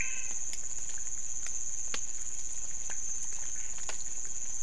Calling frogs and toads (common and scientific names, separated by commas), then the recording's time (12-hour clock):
menwig frog (Physalaemus albonotatus), pointedbelly frog (Leptodactylus podicipinus)
3:00am